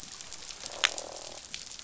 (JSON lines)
{"label": "biophony, croak", "recorder": "SoundTrap 500"}